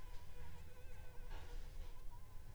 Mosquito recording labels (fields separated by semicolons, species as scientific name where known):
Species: Anopheles funestus s.s.; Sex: female; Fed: unfed; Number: one; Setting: cup